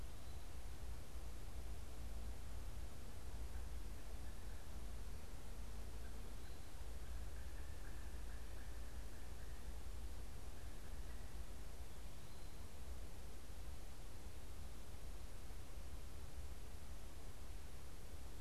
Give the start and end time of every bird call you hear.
[5.64, 8.94] Pileated Woodpecker (Dryocopus pileatus)

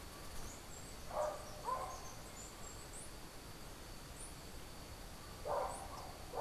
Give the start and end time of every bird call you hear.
[0.00, 6.40] Chestnut-capped Brushfinch (Arremon brunneinucha)

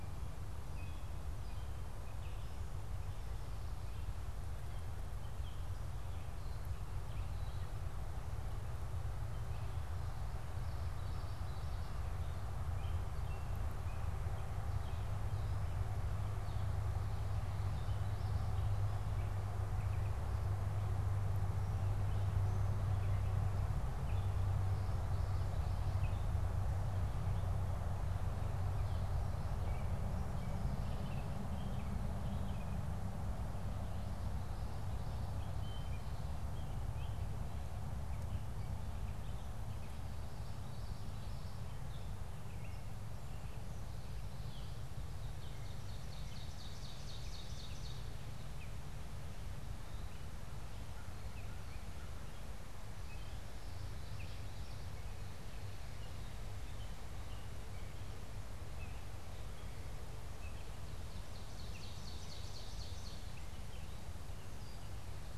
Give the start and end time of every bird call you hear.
[0.00, 23.29] Gray Catbird (Dumetella carolinensis)
[10.49, 12.09] Common Yellowthroat (Geothlypis trichas)
[23.79, 65.38] Gray Catbird (Dumetella carolinensis)
[40.29, 41.99] Common Yellowthroat (Geothlypis trichas)
[44.89, 48.39] Ovenbird (Seiurus aurocapilla)
[52.99, 55.09] Common Yellowthroat (Geothlypis trichas)
[60.49, 63.49] Ovenbird (Seiurus aurocapilla)

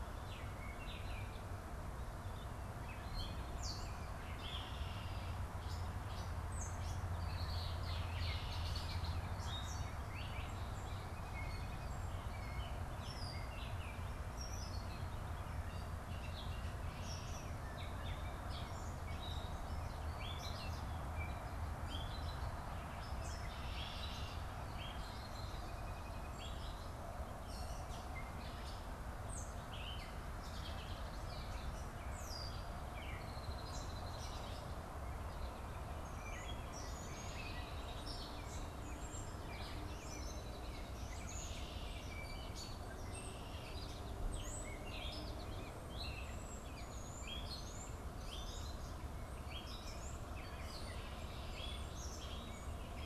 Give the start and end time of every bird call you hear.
[0.00, 13.95] Gray Catbird (Dumetella carolinensis)
[3.45, 5.55] Red-winged Blackbird (Agelaius phoeniceus)
[7.25, 9.35] Red-winged Blackbird (Agelaius phoeniceus)
[14.25, 53.05] Gray Catbird (Dumetella carolinensis)
[14.25, 53.05] Red-winged Blackbird (Agelaius phoeniceus)
[46.05, 50.45] European Starling (Sturnus vulgaris)

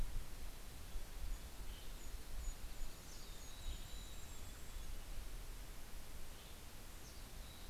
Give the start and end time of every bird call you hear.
[0.00, 1.85] Mountain Chickadee (Poecile gambeli)
[0.00, 4.55] Red-breasted Nuthatch (Sitta canadensis)
[0.55, 6.05] Golden-crowned Kinglet (Regulus satrapa)
[1.25, 2.25] Western Tanager (Piranga ludoviciana)
[2.85, 5.25] Mountain Chickadee (Poecile gambeli)
[3.35, 4.25] Western Tanager (Piranga ludoviciana)
[5.85, 7.05] Western Tanager (Piranga ludoviciana)
[6.65, 7.70] Mountain Chickadee (Poecile gambeli)

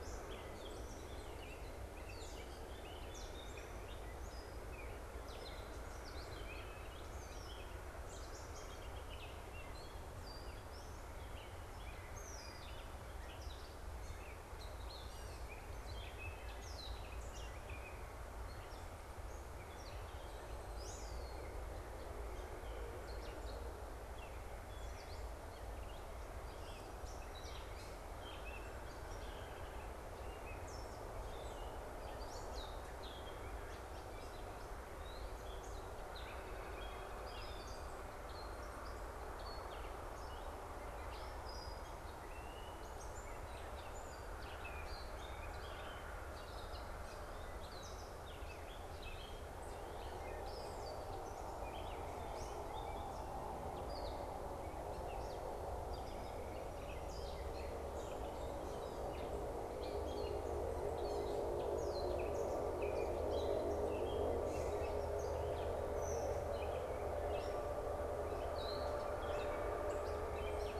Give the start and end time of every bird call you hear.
[0.00, 70.80] Gray Catbird (Dumetella carolinensis)
[36.00, 37.80] unidentified bird

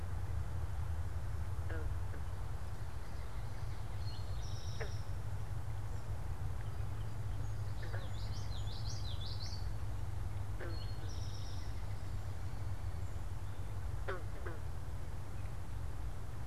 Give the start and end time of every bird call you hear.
[3.90, 5.10] Eastern Towhee (Pipilo erythrophthalmus)
[7.70, 9.80] Common Yellowthroat (Geothlypis trichas)
[10.40, 11.80] Eastern Towhee (Pipilo erythrophthalmus)

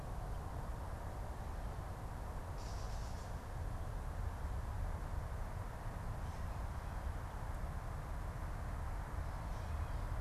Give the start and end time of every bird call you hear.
[2.30, 3.50] Gray Catbird (Dumetella carolinensis)

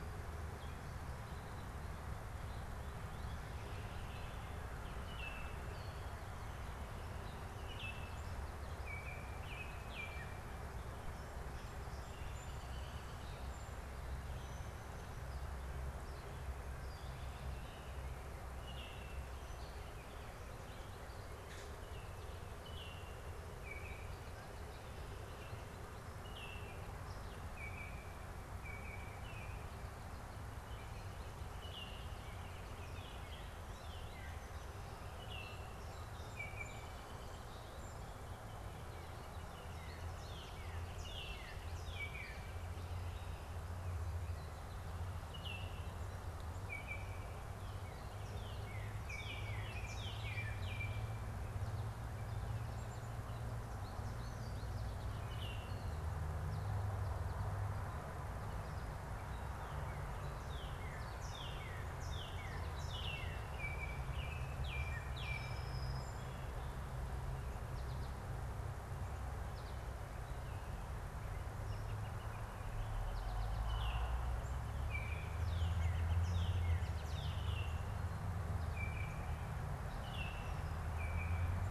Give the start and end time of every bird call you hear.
[4.83, 5.63] Baltimore Oriole (Icterus galbula)
[7.33, 10.43] Baltimore Oriole (Icterus galbula)
[18.43, 19.33] Baltimore Oriole (Icterus galbula)
[21.43, 21.83] Common Grackle (Quiscalus quiscula)
[22.43, 24.33] Baltimore Oriole (Icterus galbula)
[26.13, 29.93] Baltimore Oriole (Icterus galbula)
[31.43, 32.23] Baltimore Oriole (Icterus galbula)
[35.13, 37.13] Baltimore Oriole (Icterus galbula)
[39.23, 42.63] Northern Cardinal (Cardinalis cardinalis)
[40.83, 42.73] Baltimore Oriole (Icterus galbula)
[45.13, 47.53] Baltimore Oriole (Icterus galbula)
[47.53, 50.53] Northern Cardinal (Cardinalis cardinalis)
[49.03, 51.23] Baltimore Oriole (Icterus galbula)
[55.13, 55.73] Baltimore Oriole (Icterus galbula)
[60.13, 63.53] Northern Cardinal (Cardinalis cardinalis)
[62.83, 65.73] Baltimore Oriole (Icterus galbula)
[64.73, 66.83] Song Sparrow (Melospiza melodia)
[71.43, 77.43] Northern Flicker (Colaptes auratus)
[73.63, 75.53] Baltimore Oriole (Icterus galbula)
[75.23, 77.73] Northern Cardinal (Cardinalis cardinalis)
[77.33, 78.03] Baltimore Oriole (Icterus galbula)
[78.63, 81.63] Baltimore Oriole (Icterus galbula)

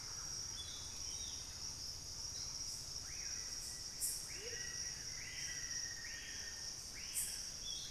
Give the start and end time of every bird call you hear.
[3.00, 7.60] Screaming Piha (Lipaugus vociferans)
[3.30, 5.30] Plain-winged Antshrike (Thamnophilus schistaceus)
[4.20, 4.70] Amazonian Motmot (Momotus momota)
[4.40, 6.80] Black-faced Antthrush (Formicarius analis)

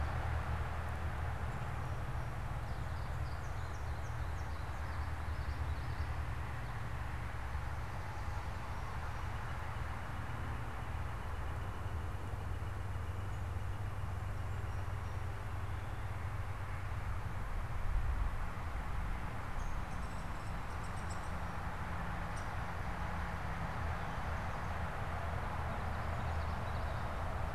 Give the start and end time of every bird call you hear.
[2.80, 4.80] American Goldfinch (Spinus tristis)
[8.90, 15.80] Northern Flicker (Colaptes auratus)
[19.30, 22.60] Downy Woodpecker (Dryobates pubescens)
[25.60, 27.50] Common Yellowthroat (Geothlypis trichas)

